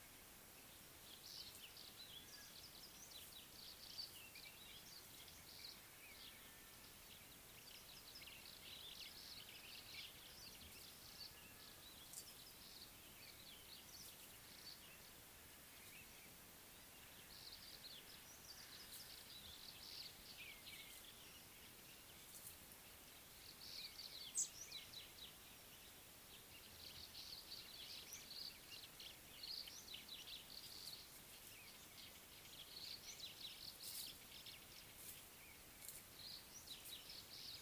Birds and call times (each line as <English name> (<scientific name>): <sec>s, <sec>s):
Brimstone Canary (Crithagra sulphurata): 19.9s